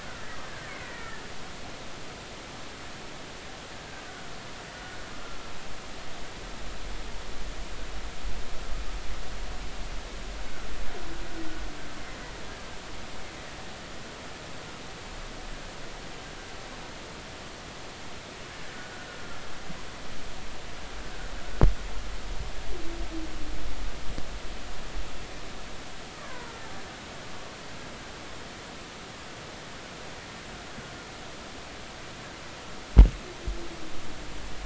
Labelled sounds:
0.7	1.2	killer whale, Bigg's (transient), 1.7 to 2.3 kHz
26.1	26.6	killer whale, Bigg's (transient), 0.90 to 1.9 kHz

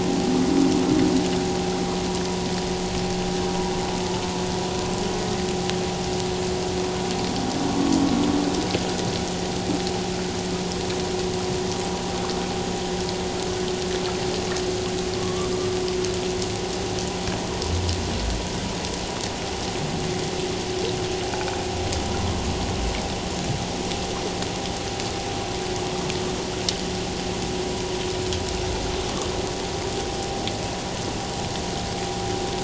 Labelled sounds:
15.2	15.5	humpback whale, 1.0 to 1.2 kHz
22.2	22.5	humpback whale, 0.97 to 1.2 kHz

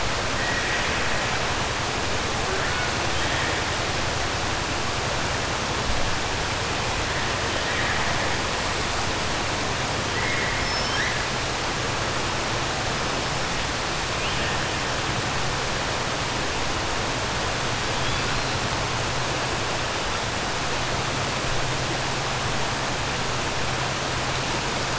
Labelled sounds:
0.4	1.0	killer whale, 1.6 to 3.3 kHz
10.1	10.6	killer whale, 1.8 to 2.4 kHz

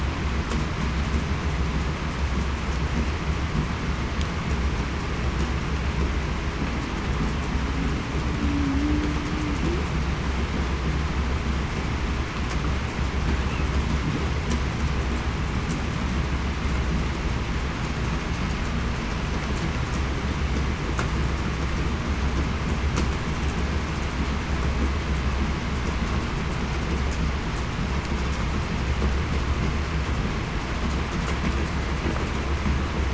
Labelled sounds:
8.4	8.8	humpback whale, 0.21 to 0.30 kHz

